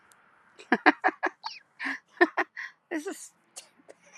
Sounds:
Laughter